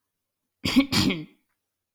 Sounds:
Throat clearing